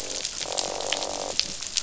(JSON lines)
{"label": "biophony, croak", "recorder": "SoundTrap 500"}